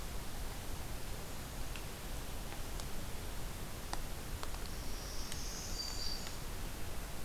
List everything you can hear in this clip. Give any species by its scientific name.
Setophaga virens, Setophaga americana